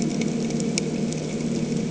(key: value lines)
label: anthrophony, boat engine
recorder: HydroMoth